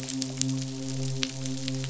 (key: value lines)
label: biophony, midshipman
recorder: SoundTrap 500